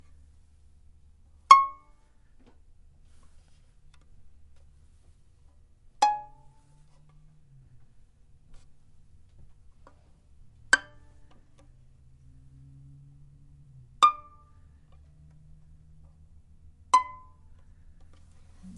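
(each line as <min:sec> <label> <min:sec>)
0:00.1 Violin strings are plucked at irregular intervals, producing distinct short tones separated by silence. 0:18.8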